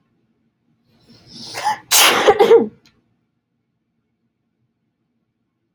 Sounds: Sneeze